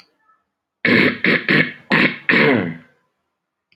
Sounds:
Throat clearing